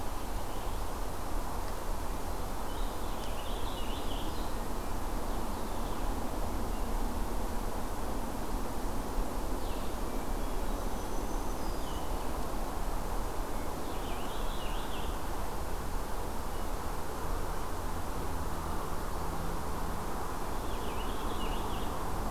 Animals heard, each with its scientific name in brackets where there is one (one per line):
Purple Finch (Haemorhous purpureus)
Black-throated Green Warbler (Setophaga virens)